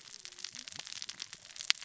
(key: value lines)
label: biophony, cascading saw
recorder: SoundTrap 600 or HydroMoth